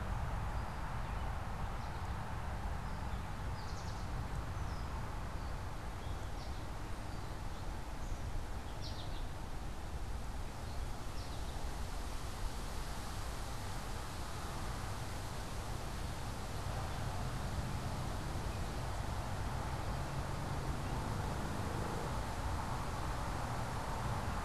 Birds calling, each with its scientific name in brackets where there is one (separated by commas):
American Goldfinch (Spinus tristis), Gray Catbird (Dumetella carolinensis)